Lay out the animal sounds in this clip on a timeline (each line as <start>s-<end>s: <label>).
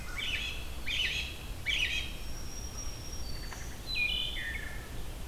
0.0s-2.3s: American Robin (Turdus migratorius)
1.8s-3.8s: Black-throated Green Warbler (Setophaga virens)
3.4s-4.8s: Wood Thrush (Hylocichla mustelina)